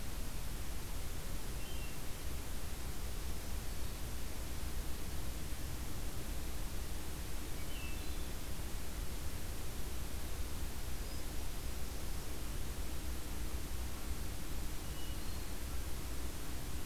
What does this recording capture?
Hermit Thrush, Magnolia Warbler